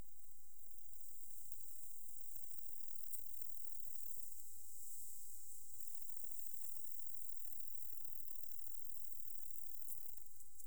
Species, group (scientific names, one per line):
Conocephalus fuscus
Orthoptera